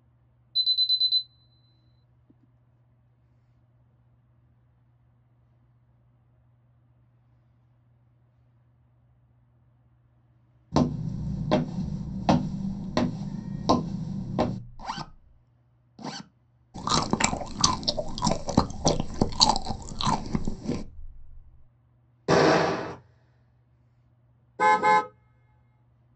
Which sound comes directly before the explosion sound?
chewing